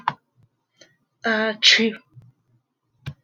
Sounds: Sneeze